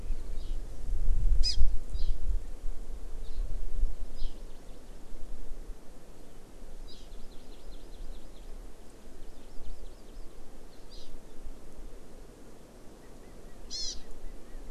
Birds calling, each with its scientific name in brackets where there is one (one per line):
Hawaii Amakihi (Chlorodrepanis virens)
Chinese Hwamei (Garrulax canorus)